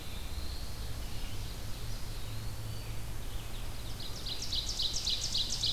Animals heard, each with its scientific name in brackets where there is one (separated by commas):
Red-eyed Vireo (Vireo olivaceus), Black-throated Blue Warbler (Setophaga caerulescens), Eastern Wood-Pewee (Contopus virens), Ovenbird (Seiurus aurocapilla)